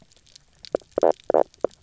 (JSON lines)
{"label": "biophony, knock croak", "recorder": "SoundTrap 300"}